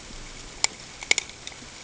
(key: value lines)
label: ambient
recorder: HydroMoth